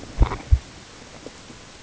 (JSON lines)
{"label": "ambient", "recorder": "HydroMoth"}